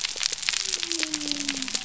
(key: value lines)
label: biophony
recorder: SoundTrap 300